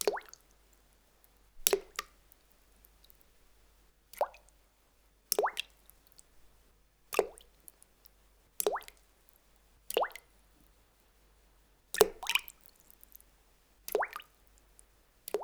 Is something dripping?
yes